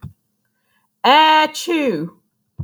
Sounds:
Sneeze